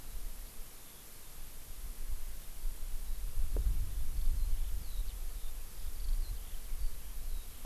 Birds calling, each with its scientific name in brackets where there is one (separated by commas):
Eurasian Skylark (Alauda arvensis)